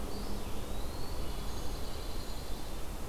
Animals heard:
Pine Warbler (Setophaga pinus)
Black-capped Chickadee (Poecile atricapillus)
Eastern Wood-Pewee (Contopus virens)

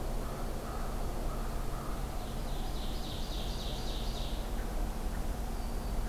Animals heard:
American Crow (Corvus brachyrhynchos)
Ovenbird (Seiurus aurocapilla)
Red-winged Blackbird (Agelaius phoeniceus)

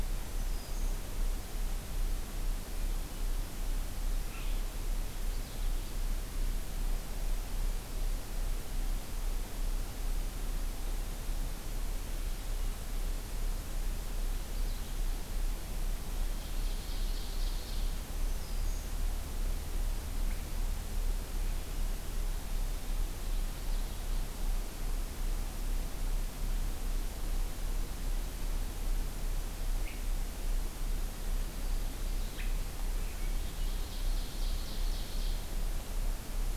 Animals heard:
Swainson's Thrush (Catharus ustulatus)
Black-throated Green Warbler (Setophaga virens)
Red Squirrel (Tamiasciurus hudsonicus)
Blue-headed Vireo (Vireo solitarius)
Purple Finch (Haemorhous purpureus)
Ovenbird (Seiurus aurocapilla)

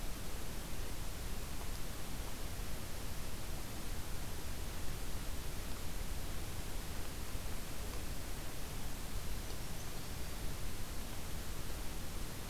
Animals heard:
Winter Wren (Troglodytes hiemalis)

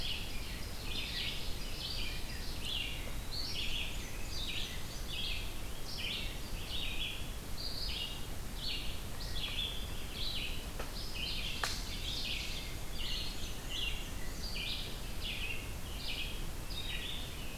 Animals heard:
Ovenbird (Seiurus aurocapilla)
Black-and-white Warbler (Mniotilta varia)
Red-eyed Vireo (Vireo olivaceus)

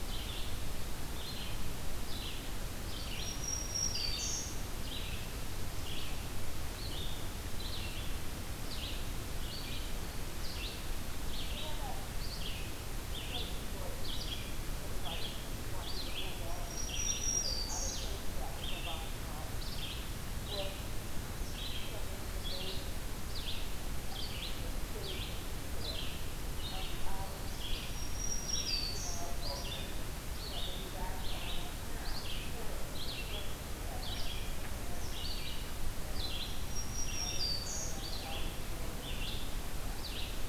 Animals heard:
Black-throated Green Warbler (Setophaga virens)
Red-eyed Vireo (Vireo olivaceus)

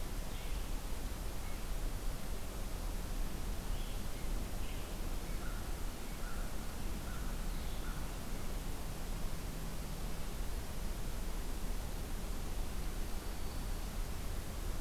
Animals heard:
American Crow (Corvus brachyrhynchos)

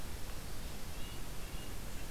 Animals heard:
Red-breasted Nuthatch (Sitta canadensis)

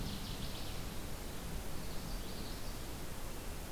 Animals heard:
Common Yellowthroat (Geothlypis trichas)
Northern Waterthrush (Parkesia noveboracensis)

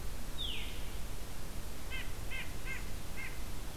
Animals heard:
Veery (Catharus fuscescens)
White-breasted Nuthatch (Sitta carolinensis)

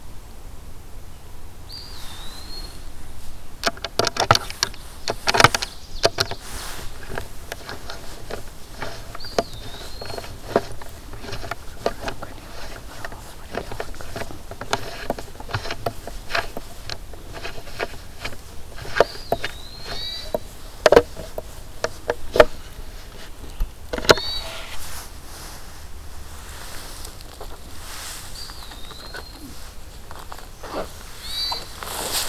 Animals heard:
Ovenbird (Seiurus aurocapilla)
Eastern Wood-Pewee (Contopus virens)
Hermit Thrush (Catharus guttatus)

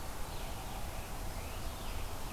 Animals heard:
Scarlet Tanager (Piranga olivacea)

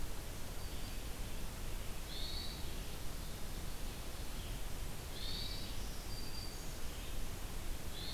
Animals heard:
Hermit Thrush (Catharus guttatus)
Black-throated Green Warbler (Setophaga virens)

